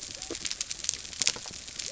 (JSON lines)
{"label": "biophony", "recorder": "SoundTrap 300"}